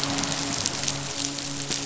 {"label": "biophony, midshipman", "recorder": "SoundTrap 500"}
{"label": "biophony", "recorder": "SoundTrap 500"}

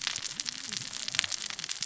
{"label": "biophony, cascading saw", "recorder": "SoundTrap 600 or HydroMoth"}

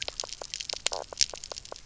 {"label": "biophony, knock croak", "recorder": "SoundTrap 300"}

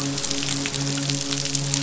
{"label": "biophony, midshipman", "recorder": "SoundTrap 500"}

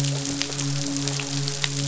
{"label": "biophony, midshipman", "recorder": "SoundTrap 500"}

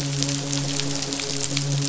{"label": "biophony, midshipman", "recorder": "SoundTrap 500"}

